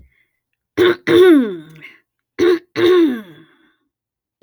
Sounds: Throat clearing